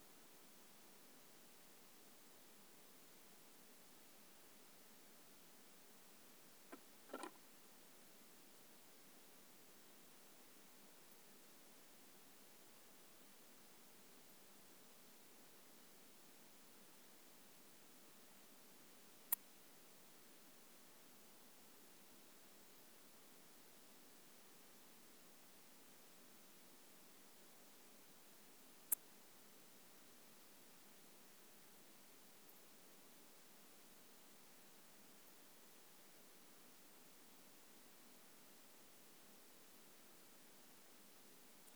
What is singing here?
Poecilimon ornatus, an orthopteran